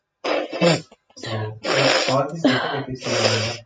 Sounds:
Sigh